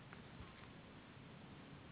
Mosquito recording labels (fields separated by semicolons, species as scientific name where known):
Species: Anopheles gambiae s.s.; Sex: female; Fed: unfed; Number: one; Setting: insect culture